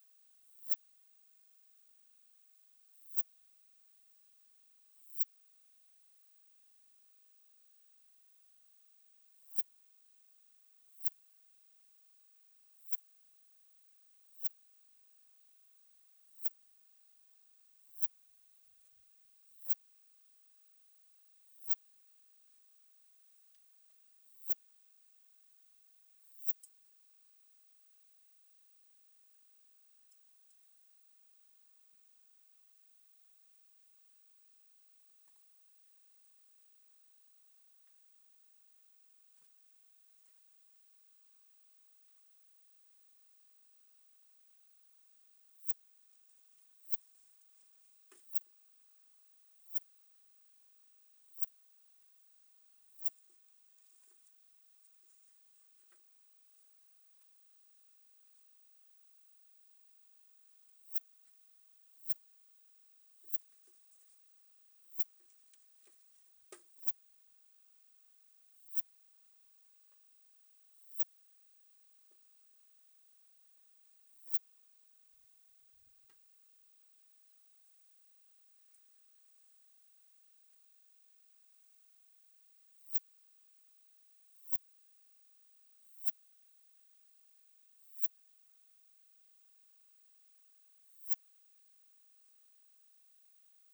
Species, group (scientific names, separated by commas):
Poecilimon nobilis, Orthoptera